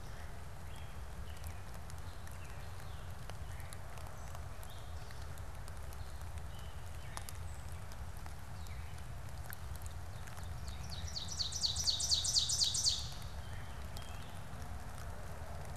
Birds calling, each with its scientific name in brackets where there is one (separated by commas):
Gray Catbird (Dumetella carolinensis), Ovenbird (Seiurus aurocapilla)